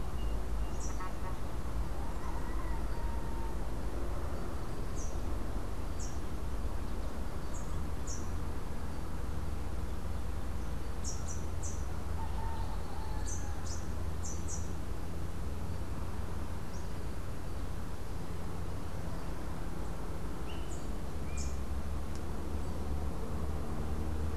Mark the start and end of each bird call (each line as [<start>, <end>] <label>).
[0.00, 1.19] Melodious Blackbird (Dives dives)
[0.00, 8.49] Rufous-capped Warbler (Basileuterus rufifrons)
[10.79, 14.79] Rufous-capped Warbler (Basileuterus rufifrons)
[20.49, 21.59] Squirrel Cuckoo (Piaya cayana)
[20.49, 21.69] Rufous-capped Warbler (Basileuterus rufifrons)